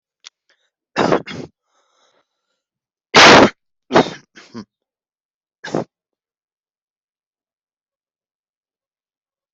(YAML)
expert_labels:
- quality: ok
  cough_type: unknown
  dyspnea: false
  wheezing: false
  stridor: false
  choking: false
  congestion: false
  nothing: true
  diagnosis: upper respiratory tract infection
  severity: unknown
age: 20
gender: male
respiratory_condition: false
fever_muscle_pain: true
status: COVID-19